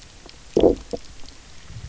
{"label": "biophony, low growl", "recorder": "SoundTrap 300"}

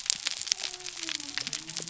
{"label": "biophony", "recorder": "SoundTrap 300"}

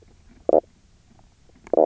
{"label": "biophony, knock croak", "recorder": "SoundTrap 300"}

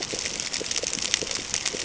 {"label": "ambient", "recorder": "HydroMoth"}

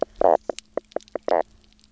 {"label": "biophony, knock croak", "recorder": "SoundTrap 300"}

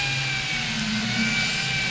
{"label": "anthrophony, boat engine", "recorder": "SoundTrap 500"}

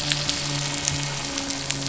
{"label": "anthrophony, boat engine", "recorder": "SoundTrap 500"}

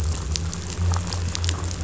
{"label": "anthrophony, boat engine", "recorder": "SoundTrap 500"}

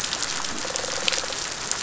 {"label": "biophony", "recorder": "SoundTrap 500"}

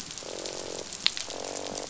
{"label": "biophony, croak", "recorder": "SoundTrap 500"}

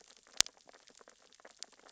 {"label": "biophony, sea urchins (Echinidae)", "recorder": "SoundTrap 600 or HydroMoth"}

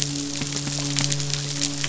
{"label": "biophony, midshipman", "recorder": "SoundTrap 500"}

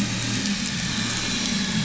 {"label": "anthrophony, boat engine", "recorder": "SoundTrap 500"}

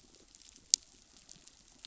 {"label": "biophony", "recorder": "SoundTrap 500"}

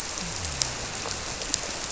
{"label": "biophony", "recorder": "SoundTrap 300"}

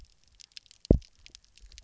{"label": "biophony, double pulse", "recorder": "SoundTrap 300"}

